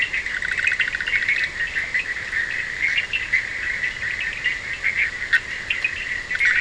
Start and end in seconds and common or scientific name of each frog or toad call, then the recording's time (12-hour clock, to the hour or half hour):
0.0	6.6	Cochran's lime tree frog
0.0	1.6	Bischoff's tree frog
4am